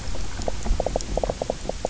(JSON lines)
{"label": "biophony, knock croak", "recorder": "SoundTrap 300"}